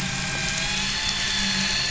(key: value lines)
label: anthrophony, boat engine
recorder: SoundTrap 500